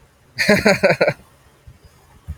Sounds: Laughter